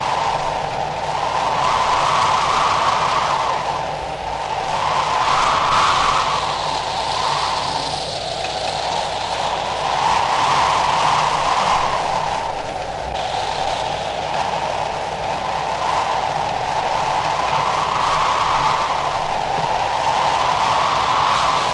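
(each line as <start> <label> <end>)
0.0 Strong wind is howling. 21.7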